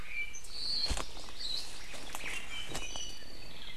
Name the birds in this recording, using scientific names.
Himatione sanguinea, Loxops coccineus, Myadestes obscurus, Drepanis coccinea